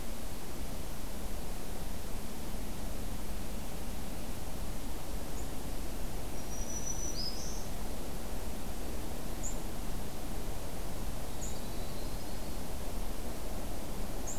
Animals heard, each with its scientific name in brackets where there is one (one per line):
Yellow-rumped Warbler (Setophaga coronata)
Black-throated Green Warbler (Setophaga virens)